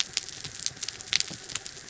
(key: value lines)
label: anthrophony, mechanical
recorder: SoundTrap 300